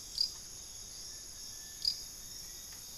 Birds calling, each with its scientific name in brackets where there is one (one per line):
Gilded Barbet (Capito auratus)
Long-billed Woodcreeper (Nasica longirostris)